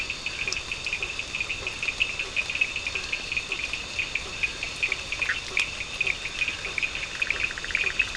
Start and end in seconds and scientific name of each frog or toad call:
0.0	8.1	Boana faber
0.0	8.1	Elachistocleis bicolor
0.0	8.1	Sphaenorhynchus surdus
5.1	8.1	Boana bischoffi